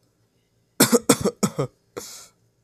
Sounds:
Cough